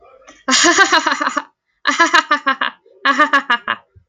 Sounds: Laughter